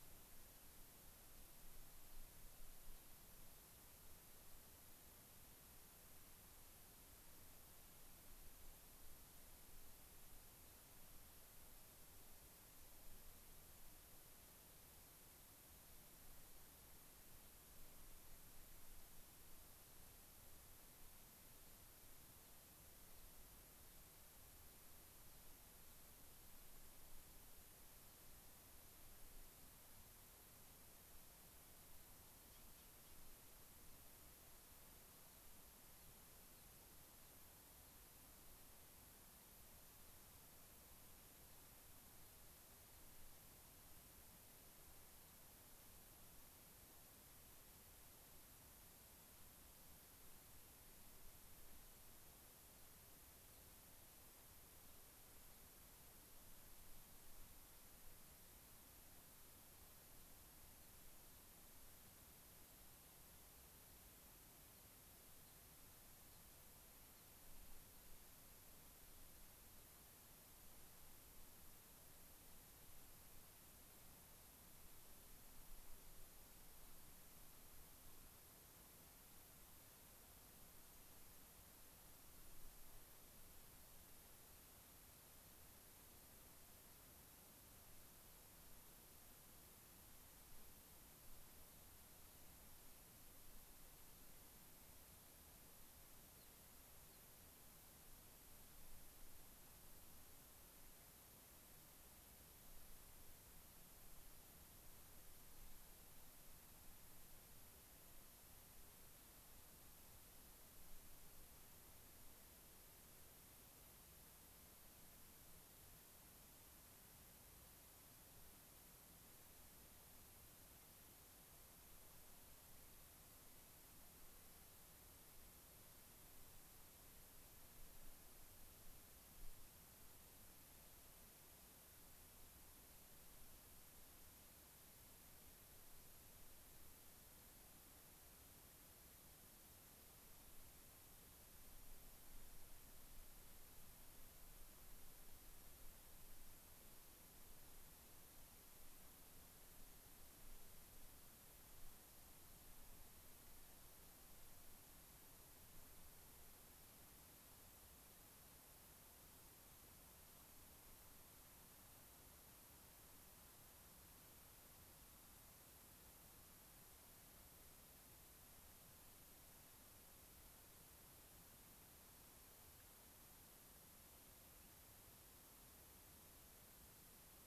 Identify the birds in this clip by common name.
Gray-crowned Rosy-Finch